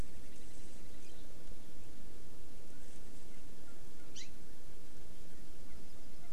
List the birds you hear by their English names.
Hawaii Amakihi